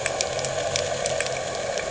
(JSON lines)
{"label": "anthrophony, boat engine", "recorder": "HydroMoth"}